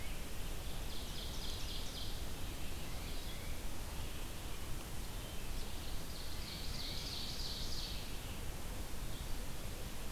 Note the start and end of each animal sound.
0.0s-10.1s: Red-eyed Vireo (Vireo olivaceus)
0.3s-2.4s: Ovenbird (Seiurus aurocapilla)
2.8s-3.7s: Tufted Titmouse (Baeolophus bicolor)
6.2s-8.3s: Ovenbird (Seiurus aurocapilla)

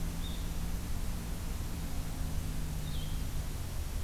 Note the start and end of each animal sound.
0.0s-4.0s: Blue-headed Vireo (Vireo solitarius)

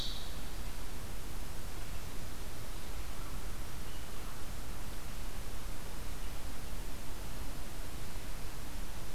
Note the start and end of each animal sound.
2.9s-4.6s: American Crow (Corvus brachyrhynchos)

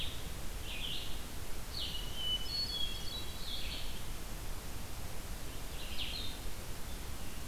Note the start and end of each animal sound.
0.0s-7.5s: Blue-headed Vireo (Vireo solitarius)
0.0s-7.5s: Red-eyed Vireo (Vireo olivaceus)
2.1s-3.8s: Hermit Thrush (Catharus guttatus)

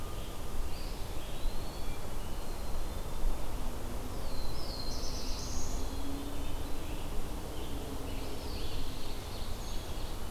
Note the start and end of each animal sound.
0.6s-2.1s: Eastern Wood-Pewee (Contopus virens)
1.7s-3.3s: Black-capped Chickadee (Poecile atricapillus)
4.0s-6.1s: Black-throated Blue Warbler (Setophaga caerulescens)
5.7s-6.6s: Black-capped Chickadee (Poecile atricapillus)
6.4s-9.1s: Scarlet Tanager (Piranga olivacea)
7.9s-10.3s: Ovenbird (Seiurus aurocapilla)

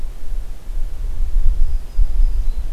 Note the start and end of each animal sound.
1.3s-2.7s: Black-throated Green Warbler (Setophaga virens)

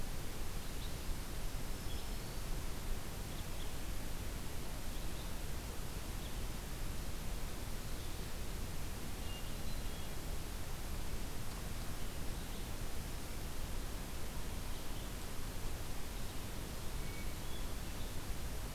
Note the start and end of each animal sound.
0.6s-18.7s: Red-eyed Vireo (Vireo olivaceus)
1.3s-2.6s: Black-throated Green Warbler (Setophaga virens)
9.1s-10.2s: Hermit Thrush (Catharus guttatus)
16.8s-17.8s: Hermit Thrush (Catharus guttatus)

